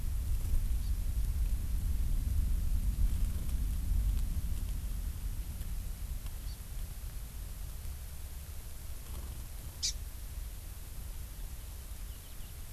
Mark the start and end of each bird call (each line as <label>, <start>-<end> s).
Hawaii Amakihi (Chlorodrepanis virens), 6.5-6.6 s
Hawaii Amakihi (Chlorodrepanis virens), 9.8-10.0 s